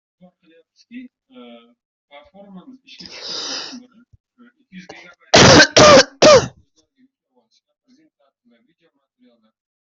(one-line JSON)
{"expert_labels": [{"quality": "poor", "cough_type": "unknown", "dyspnea": false, "wheezing": false, "stridor": false, "choking": false, "congestion": false, "nothing": true, "diagnosis": "healthy cough", "severity": "pseudocough/healthy cough"}]}